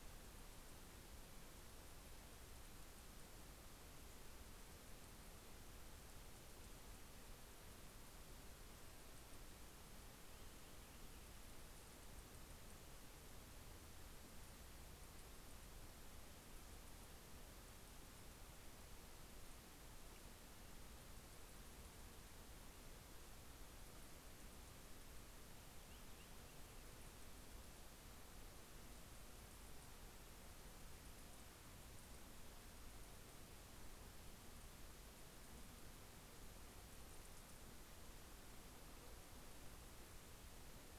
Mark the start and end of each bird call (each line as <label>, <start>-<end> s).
Purple Finch (Haemorhous purpureus), 25.2-27.5 s